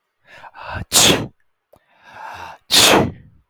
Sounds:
Sneeze